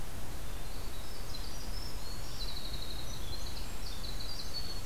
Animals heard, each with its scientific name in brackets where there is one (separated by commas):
Winter Wren (Troglodytes hiemalis)